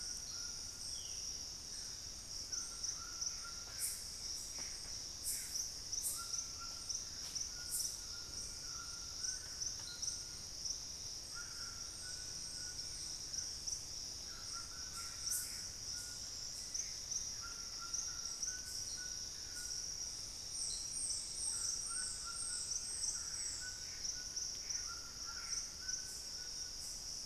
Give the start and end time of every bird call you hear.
0.0s-27.2s: White-throated Toucan (Ramphastos tucanus)
0.7s-1.4s: Black-spotted Bare-eye (Phlegopsis nigromaculata)
3.0s-5.7s: Gray Antbird (Cercomacra cinerascens)
14.7s-17.2s: Gray Antbird (Cercomacra cinerascens)
22.9s-25.8s: Gray Antbird (Cercomacra cinerascens)

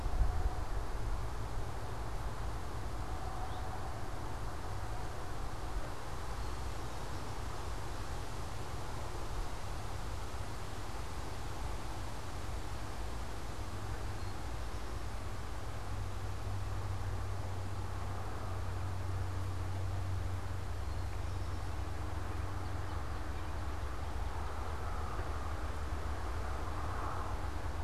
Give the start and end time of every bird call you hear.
3.4s-3.7s: Eastern Towhee (Pipilo erythrophthalmus)
6.2s-7.5s: Eastern Towhee (Pipilo erythrophthalmus)
13.9s-15.2s: Eastern Towhee (Pipilo erythrophthalmus)
20.8s-21.7s: Eastern Towhee (Pipilo erythrophthalmus)
22.5s-25.0s: unidentified bird

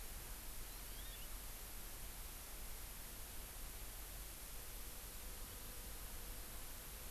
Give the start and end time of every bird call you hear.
0.7s-1.2s: Hawaii Amakihi (Chlorodrepanis virens)

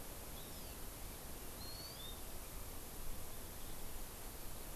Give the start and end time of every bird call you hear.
0.3s-0.7s: Hawaii Amakihi (Chlorodrepanis virens)
1.5s-2.1s: Hawaii Amakihi (Chlorodrepanis virens)

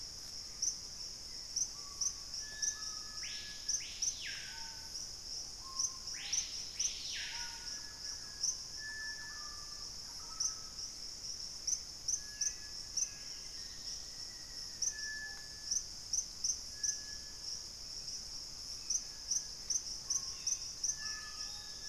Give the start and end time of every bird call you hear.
0.0s-1.9s: Gray Antbird (Cercomacra cinerascens)
0.0s-21.9s: Screaming Piha (Lipaugus vociferans)
7.3s-10.7s: Thrush-like Wren (Campylorhynchus turdinus)
12.3s-13.6s: Black-capped Becard (Pachyramphus marginatus)
12.4s-15.2s: Black-faced Antthrush (Formicarius analis)
16.7s-18.5s: unidentified bird
18.8s-21.8s: Gray Antbird (Cercomacra cinerascens)
20.2s-21.9s: Black-capped Becard (Pachyramphus marginatus)

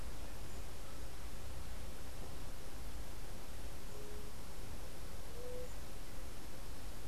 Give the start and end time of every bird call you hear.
3.8s-5.8s: White-tipped Dove (Leptotila verreauxi)

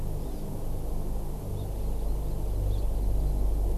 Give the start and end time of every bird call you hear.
0.2s-0.4s: Hawaii Amakihi (Chlorodrepanis virens)

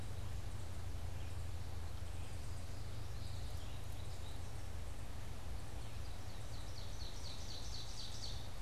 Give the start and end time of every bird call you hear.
2.9s-4.6s: Common Yellowthroat (Geothlypis trichas)
5.7s-8.6s: Ovenbird (Seiurus aurocapilla)

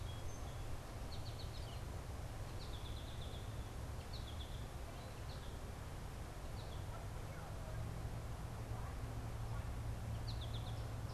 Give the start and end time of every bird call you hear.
0.0s-0.5s: Song Sparrow (Melospiza melodia)
0.0s-11.1s: American Goldfinch (Spinus tristis)
1.5s-1.8s: Northern Flicker (Colaptes auratus)

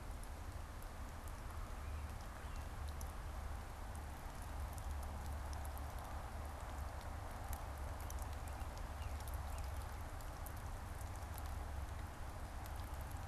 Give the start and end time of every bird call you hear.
1.6s-2.9s: American Robin (Turdus migratorius)
7.5s-10.1s: American Robin (Turdus migratorius)

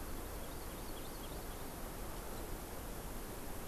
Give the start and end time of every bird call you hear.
0.0s-1.8s: Hawaii Amakihi (Chlorodrepanis virens)

